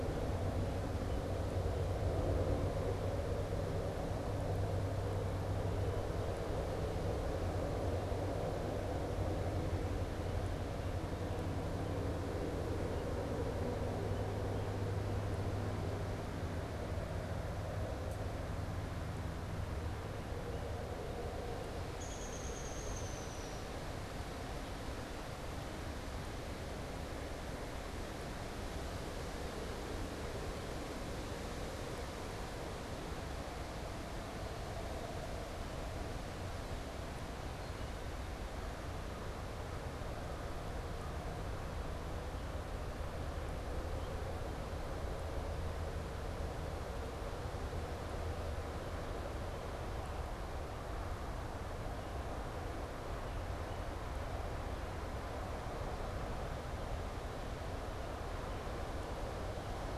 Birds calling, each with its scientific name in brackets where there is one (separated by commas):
Downy Woodpecker (Dryobates pubescens)